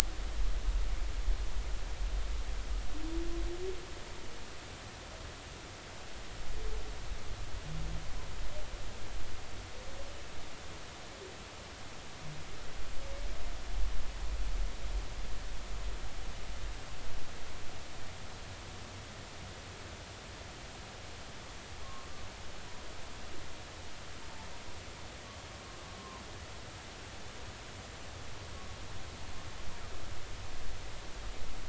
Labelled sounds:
21.8	22.1	humpback whale, 1.0 to 1.1 kHz

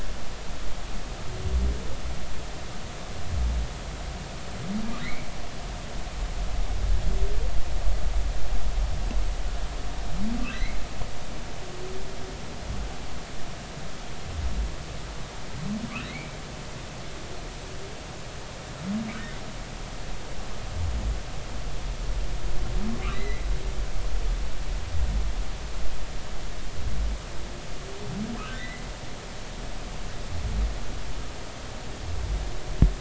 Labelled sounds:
5.0	5.3	humpback whale, 1.8 to 2.4 kHz
10.5	10.8	humpback whale, 1.9 to 2.3 kHz
16.1	16.4	humpback whale, 2.0 to 2.4 kHz
23.1	23.4	humpback whale, 1.9 to 4.2 kHz
28.5	28.9	humpback whale, 1.8 to 2.2 kHz

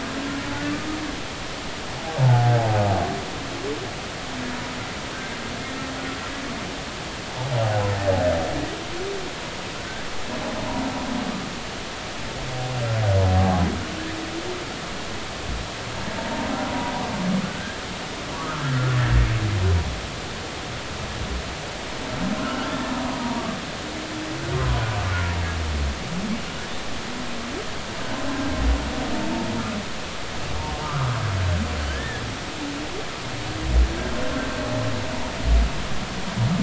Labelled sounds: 2.2	2.5	humpback whale, 0.80 to 0.99 kHz
7.5	7.9	humpback whale, 0.80 to 0.90 kHz
13.4	13.6	humpback whale, 0.80 to 0.90 kHz
17.4	18.7	humpback whale, 0.93 to 1.8 kHz
22.4	23.4	humpback whale, 0.90 to 1.6 kHz
24.5	24.8	humpback whale, 0.96 to 1.1 kHz
30.8	31.2	humpback whale, 0.90 to 1.4 kHz
31.9	32.2	humpback whale, 1.5 to 1.9 kHz

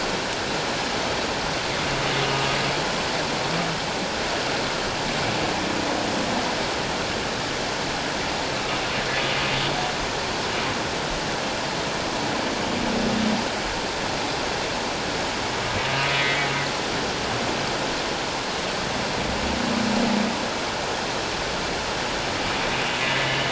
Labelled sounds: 16.1	16.5	humpback whale, 1.9 to 2.1 kHz
23.0	23.4	humpback whale, 1.9 to 2.0 kHz

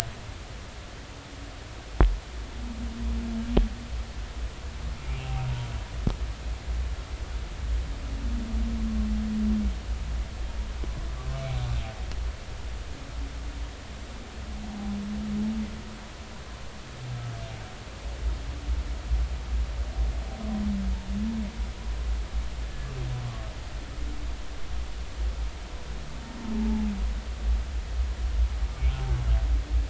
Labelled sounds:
28.9	29.2	humpback whale, 0.80 to 0.93 kHz

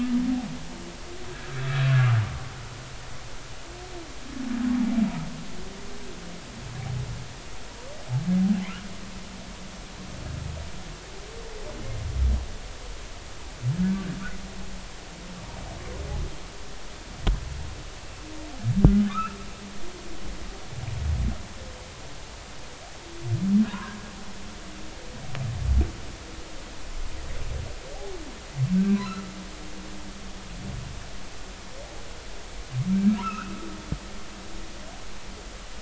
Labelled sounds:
1.9	2.2	humpback whale, 1.1 to 1.5 kHz
13.8	14.2	humpback whale, 1.4 to 1.7 kHz
19.1	19.4	humpback whale, 1.1 to 2.7 kHz
23.7	24.0	humpback whale, 0.93 to 1.5 kHz
28.8	29.3	humpback whale, 1.2 to 1.6 kHz
33.2	33.5	humpback whale, 2.4 to 2.7 kHz
34.1	34.5	humpback whale, 1.2 to 1.6 kHz

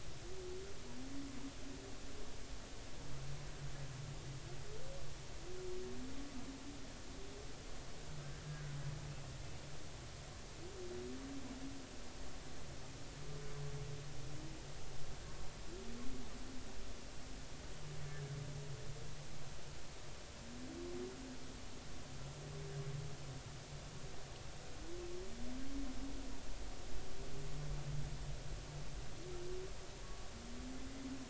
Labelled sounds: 8.4	8.7	humpback whale, 1.4 to 1.7 kHz
18.1	18.3	humpback whale, 1.6 to 1.8 kHz

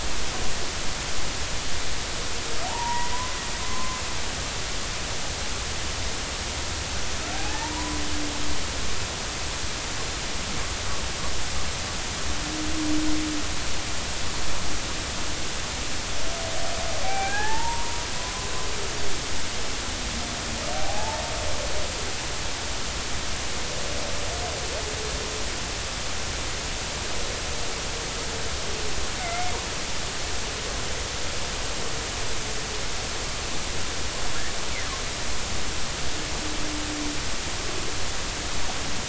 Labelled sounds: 2.6	3.1	humpback whale, 0.80 to 1.1 kHz
3.6	4.0	humpback whale, 0.99 to 1.2 kHz
7.3	8.0	humpback whale, 0.80 to 1.1 kHz
17.0	18.0	humpback whale, 0.80 to 2.6 kHz
20.7	21.2	humpback whale, 0.80 to 0.96 kHz
29.2	29.5	humpback whale, 2.0 to 2.2 kHz

